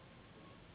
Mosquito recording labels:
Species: Anopheles gambiae s.s.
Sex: female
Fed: unfed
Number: one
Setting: insect culture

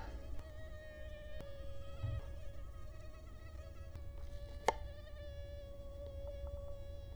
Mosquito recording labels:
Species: Culex quinquefasciatus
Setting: cup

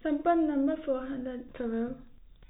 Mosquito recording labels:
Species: no mosquito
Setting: cup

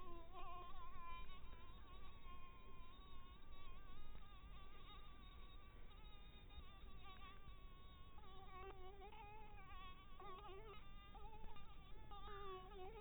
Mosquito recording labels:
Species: Anopheles barbirostris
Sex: female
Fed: blood-fed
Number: one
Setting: cup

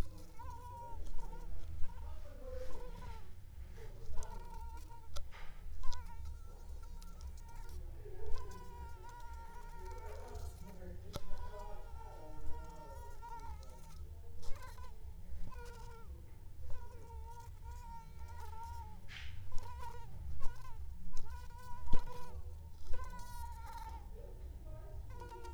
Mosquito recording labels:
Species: Culex pipiens complex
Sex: female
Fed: unfed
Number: one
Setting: cup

